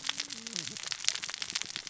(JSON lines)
{"label": "biophony, cascading saw", "recorder": "SoundTrap 600 or HydroMoth"}